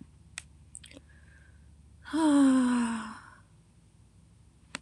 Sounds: Sigh